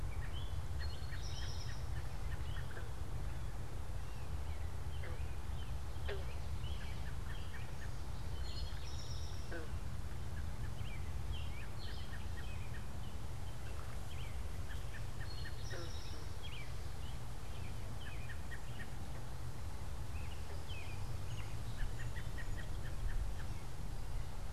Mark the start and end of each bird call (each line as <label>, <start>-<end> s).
American Robin (Turdus migratorius), 0.0-24.5 s
Eastern Towhee (Pipilo erythrophthalmus), 0.7-1.9 s
Eastern Towhee (Pipilo erythrophthalmus), 8.3-9.7 s
Eastern Towhee (Pipilo erythrophthalmus), 15.2-16.4 s